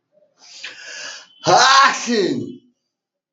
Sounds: Sneeze